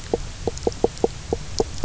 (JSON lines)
{"label": "biophony, knock croak", "recorder": "SoundTrap 300"}